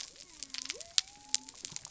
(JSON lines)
{"label": "biophony", "recorder": "SoundTrap 300"}